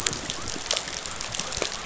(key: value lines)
label: biophony
recorder: SoundTrap 500